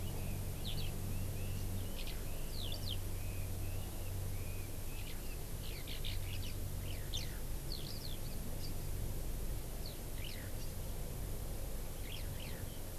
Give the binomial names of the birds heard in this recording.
Leiothrix lutea, Alauda arvensis